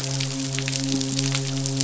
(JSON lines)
{"label": "biophony, midshipman", "recorder": "SoundTrap 500"}